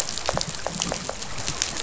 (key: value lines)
label: biophony
recorder: SoundTrap 500